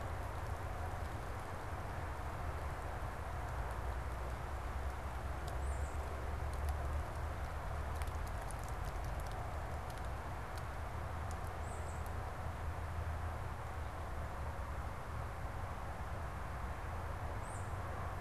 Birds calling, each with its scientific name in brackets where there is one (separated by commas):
Tufted Titmouse (Baeolophus bicolor)